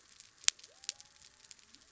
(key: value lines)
label: biophony
recorder: SoundTrap 300